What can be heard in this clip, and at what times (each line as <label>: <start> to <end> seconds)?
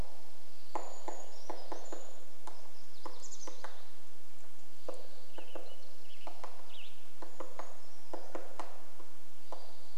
Brown Creeper song: 0 to 2 seconds
unidentified sound: 0 to 2 seconds
woodpecker drumming: 0 to 10 seconds
Chestnut-backed Chickadee call: 2 to 4 seconds
MacGillivray's Warbler song: 2 to 4 seconds
unidentified sound: 4 to 6 seconds
Spotted Towhee song: 4 to 8 seconds
Western Tanager song: 4 to 8 seconds
Brown Creeper song: 6 to 8 seconds
unidentified sound: 8 to 10 seconds